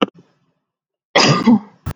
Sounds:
Cough